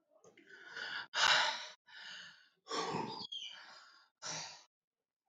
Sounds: Sigh